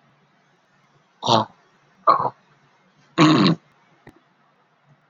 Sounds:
Throat clearing